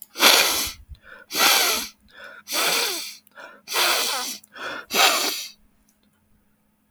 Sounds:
Sniff